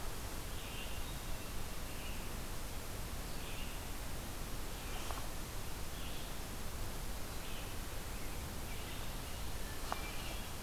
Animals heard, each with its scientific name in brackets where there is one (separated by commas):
Hermit Thrush (Catharus guttatus), Red-eyed Vireo (Vireo olivaceus)